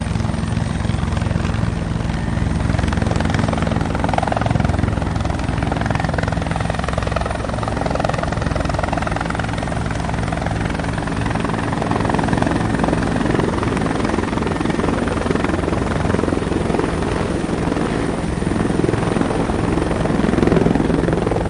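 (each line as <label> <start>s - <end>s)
Helicopter propellers whirring. 0.0s - 21.4s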